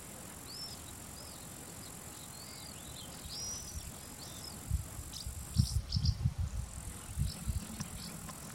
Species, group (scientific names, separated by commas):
Tettigettalna josei, Cicadidae